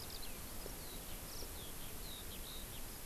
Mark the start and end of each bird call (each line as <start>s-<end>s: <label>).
0.0s-3.1s: Eurasian Skylark (Alauda arvensis)